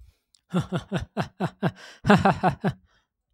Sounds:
Laughter